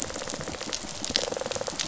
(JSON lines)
{"label": "biophony, rattle response", "recorder": "SoundTrap 500"}